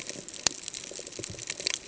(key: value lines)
label: ambient
recorder: HydroMoth